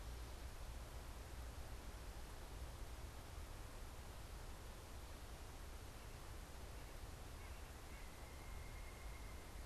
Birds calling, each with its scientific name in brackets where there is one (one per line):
White-breasted Nuthatch (Sitta carolinensis)